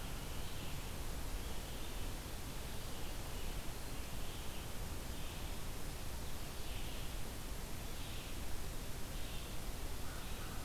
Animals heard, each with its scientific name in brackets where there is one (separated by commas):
Red-eyed Vireo (Vireo olivaceus), American Crow (Corvus brachyrhynchos)